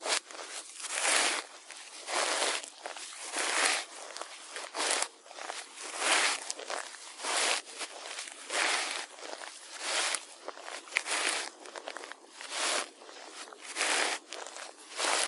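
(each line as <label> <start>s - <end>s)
Loud rustling and crunching feet on a soft, scratchy floor. 0.0s - 15.3s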